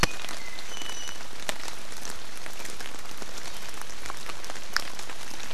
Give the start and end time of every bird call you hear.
[0.00, 1.20] Iiwi (Drepanis coccinea)

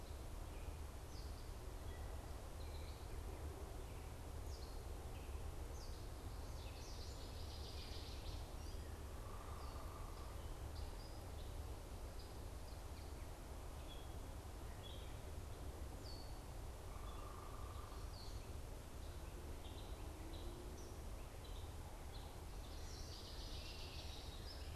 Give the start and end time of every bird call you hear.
[0.00, 22.84] Gray Catbird (Dumetella carolinensis)
[6.64, 8.45] Northern Waterthrush (Parkesia noveboracensis)
[8.95, 10.45] unidentified bird
[16.75, 18.05] unidentified bird
[22.55, 24.75] Northern Waterthrush (Parkesia noveboracensis)

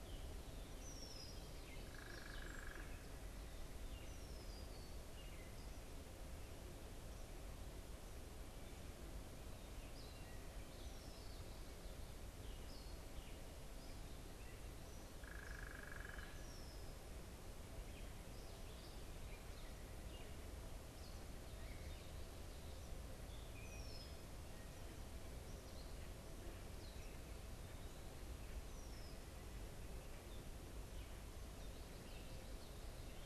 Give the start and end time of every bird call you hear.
[0.00, 14.26] unidentified bird
[0.76, 1.36] Red-winged Blackbird (Agelaius phoeniceus)
[4.06, 4.96] Red-winged Blackbird (Agelaius phoeniceus)
[10.56, 11.56] Red-winged Blackbird (Agelaius phoeniceus)
[15.06, 16.46] unidentified bird
[16.26, 16.96] Red-winged Blackbird (Agelaius phoeniceus)
[17.36, 33.25] unidentified bird
[23.56, 24.26] Red-winged Blackbird (Agelaius phoeniceus)
[28.56, 29.36] Red-winged Blackbird (Agelaius phoeniceus)

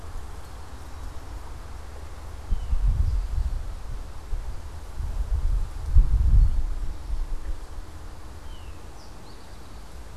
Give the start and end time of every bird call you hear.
[2.40, 3.70] Eastern Towhee (Pipilo erythrophthalmus)
[8.20, 10.10] Eastern Towhee (Pipilo erythrophthalmus)

